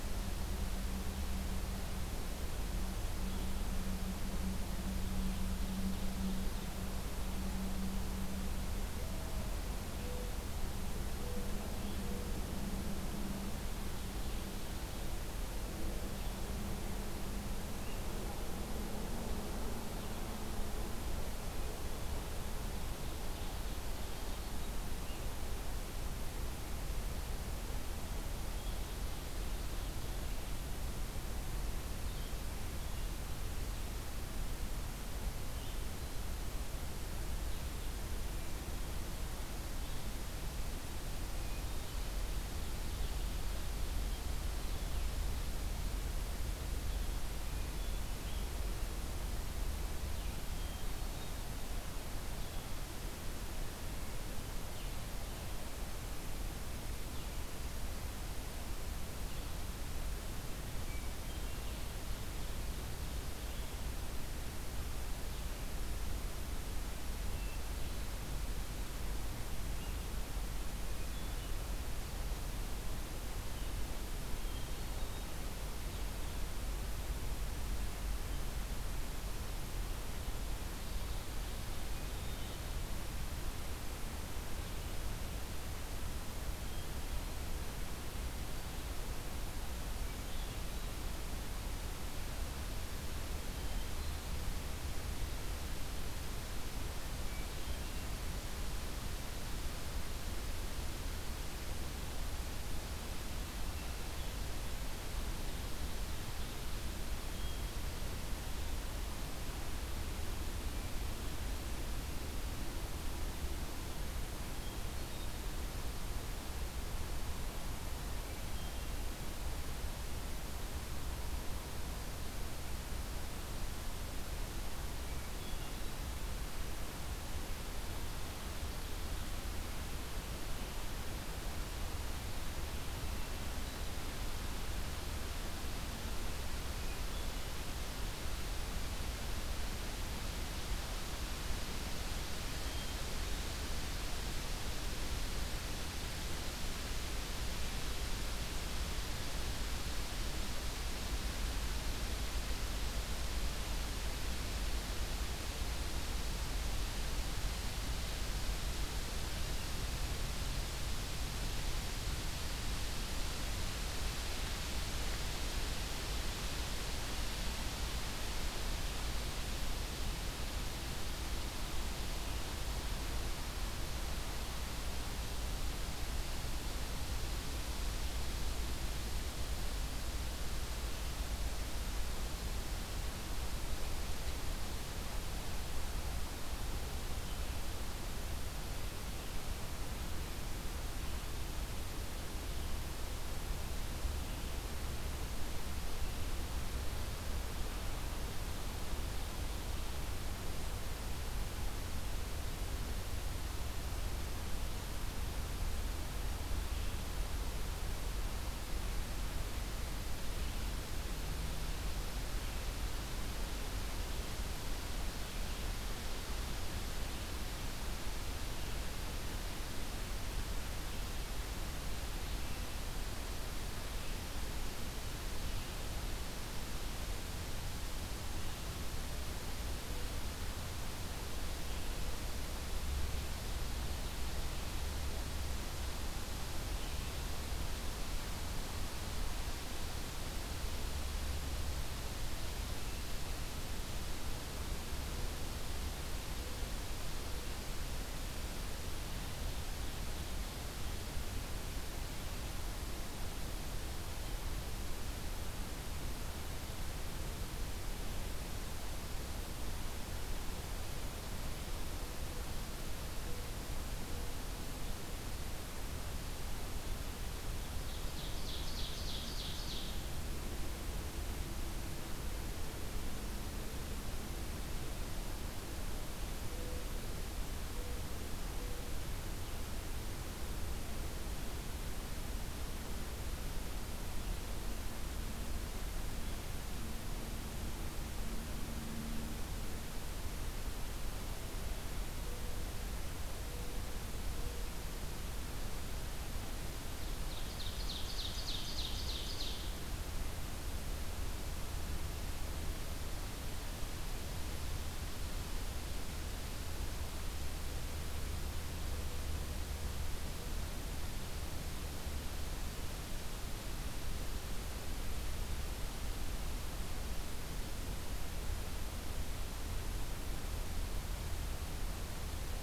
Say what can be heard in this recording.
Ovenbird, Mourning Dove, Blue-headed Vireo, Hermit Thrush